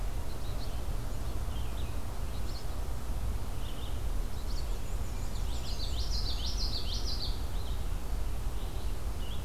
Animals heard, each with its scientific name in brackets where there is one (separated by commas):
Black-and-white Warbler (Mniotilta varia), Red-eyed Vireo (Vireo olivaceus), Common Yellowthroat (Geothlypis trichas)